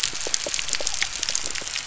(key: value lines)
label: biophony
recorder: SoundTrap 300